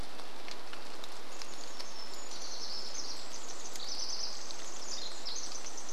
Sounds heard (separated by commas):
rain, Red-breasted Nuthatch song, Pacific Wren song